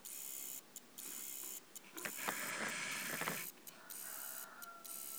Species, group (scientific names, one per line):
Conocephalus brevipennis
Orthoptera